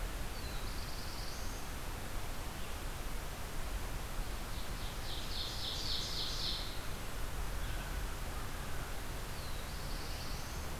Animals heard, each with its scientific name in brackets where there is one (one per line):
Black-throated Blue Warbler (Setophaga caerulescens)
Ovenbird (Seiurus aurocapilla)
American Crow (Corvus brachyrhynchos)